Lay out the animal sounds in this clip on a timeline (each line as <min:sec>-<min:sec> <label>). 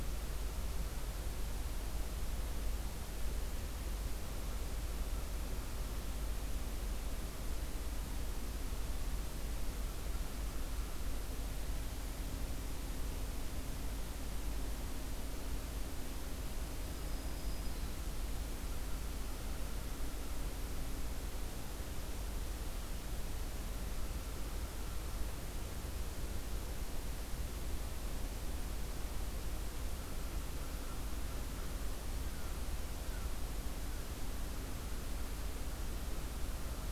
0:16.8-0:18.1 Black-throated Green Warbler (Setophaga virens)
0:29.6-0:35.1 American Crow (Corvus brachyrhynchos)